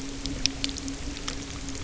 {"label": "anthrophony, boat engine", "recorder": "SoundTrap 300"}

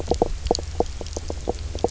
{"label": "biophony, knock croak", "recorder": "SoundTrap 300"}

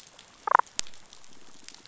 {"label": "biophony", "recorder": "SoundTrap 500"}
{"label": "biophony, damselfish", "recorder": "SoundTrap 500"}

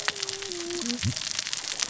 {"label": "biophony, cascading saw", "recorder": "SoundTrap 600 or HydroMoth"}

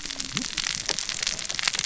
{"label": "biophony, cascading saw", "recorder": "SoundTrap 600 or HydroMoth"}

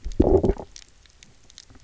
{"label": "biophony, low growl", "recorder": "SoundTrap 300"}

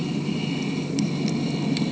{"label": "anthrophony, boat engine", "recorder": "HydroMoth"}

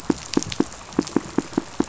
{"label": "biophony, pulse", "recorder": "SoundTrap 500"}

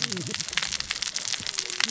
{"label": "biophony, cascading saw", "recorder": "SoundTrap 600 or HydroMoth"}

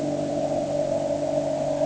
{"label": "anthrophony, boat engine", "recorder": "HydroMoth"}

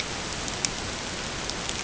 {"label": "ambient", "recorder": "HydroMoth"}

